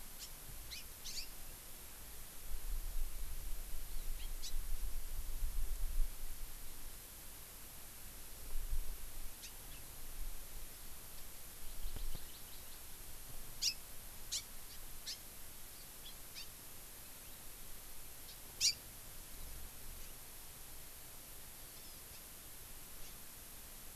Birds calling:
House Finch (Haemorhous mexicanus), Hawaii Amakihi (Chlorodrepanis virens)

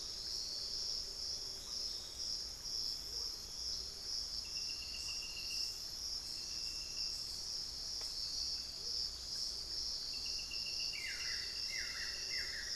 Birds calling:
Amazonian Motmot (Momotus momota), Buff-throated Woodcreeper (Xiphorhynchus guttatus)

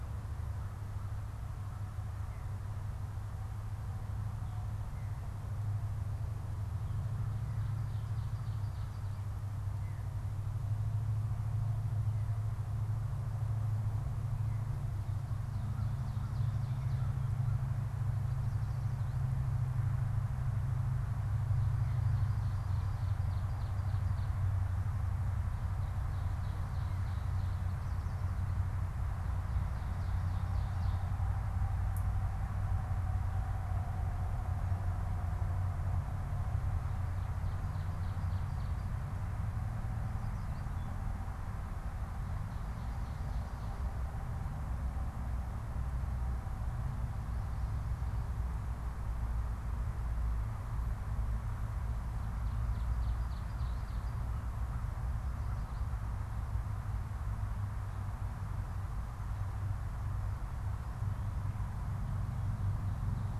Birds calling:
Veery (Catharus fuscescens), Ovenbird (Seiurus aurocapilla)

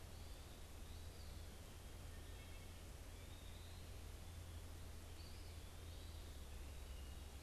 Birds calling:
unidentified bird, Eastern Wood-Pewee (Contopus virens), Wood Thrush (Hylocichla mustelina)

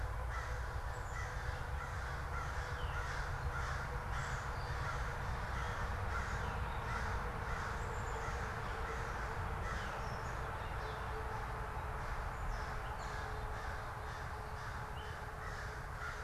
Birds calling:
Veery (Catharus fuscescens), American Crow (Corvus brachyrhynchos), Black-capped Chickadee (Poecile atricapillus), Gray Catbird (Dumetella carolinensis)

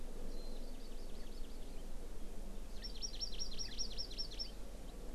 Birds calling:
Hawaii Amakihi (Chlorodrepanis virens), Warbling White-eye (Zosterops japonicus)

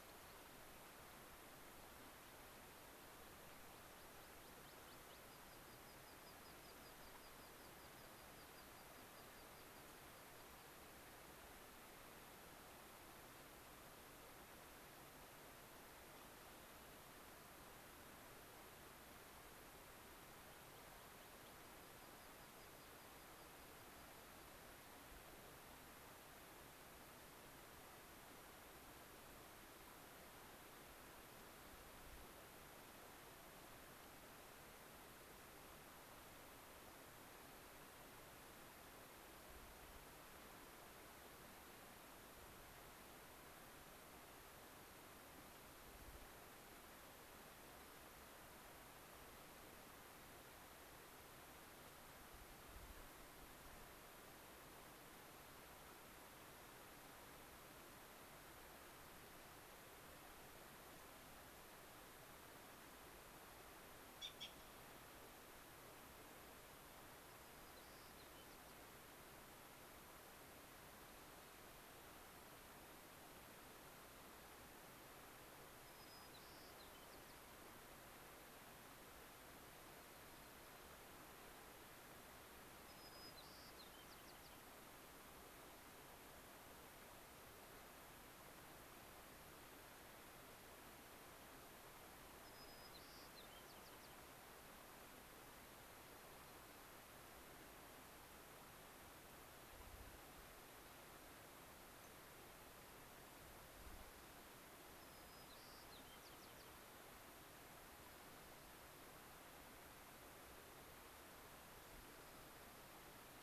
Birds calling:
White-crowned Sparrow (Zonotrichia leucophrys), Dark-eyed Junco (Junco hyemalis), unidentified bird, American Pipit (Anthus rubescens)

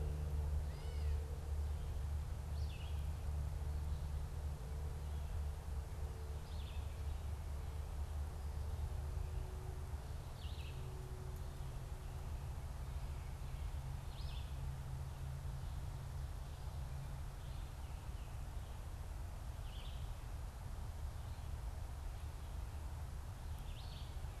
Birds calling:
Gray Catbird (Dumetella carolinensis), Red-eyed Vireo (Vireo olivaceus)

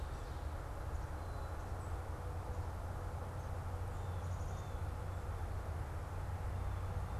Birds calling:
Blue Jay (Cyanocitta cristata), Black-capped Chickadee (Poecile atricapillus)

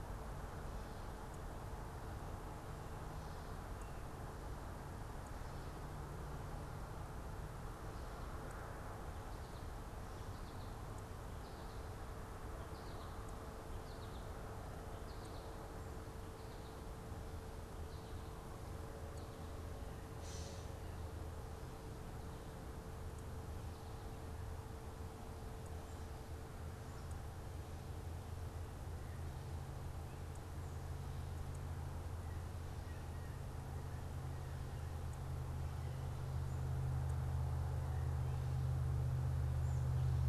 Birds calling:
Blue Jay (Cyanocitta cristata), Gray Catbird (Dumetella carolinensis), American Goldfinch (Spinus tristis)

